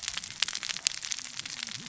{"label": "biophony, cascading saw", "recorder": "SoundTrap 600 or HydroMoth"}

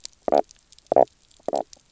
{"label": "biophony, knock croak", "recorder": "SoundTrap 300"}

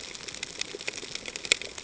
{"label": "ambient", "recorder": "HydroMoth"}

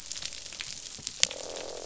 {"label": "biophony, croak", "recorder": "SoundTrap 500"}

